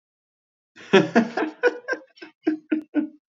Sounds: Laughter